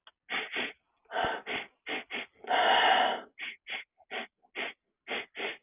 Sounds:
Sniff